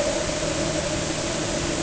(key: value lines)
label: anthrophony, boat engine
recorder: HydroMoth